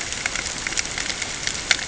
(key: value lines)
label: ambient
recorder: HydroMoth